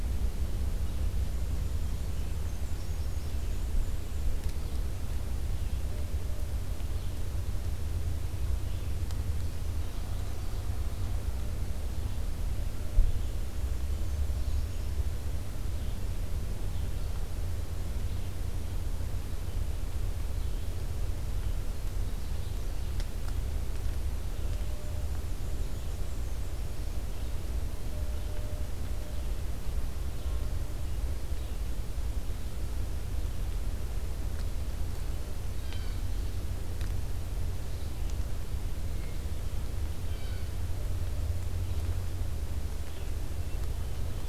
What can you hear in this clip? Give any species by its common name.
Red-eyed Vireo, Black-and-white Warbler, Blue Jay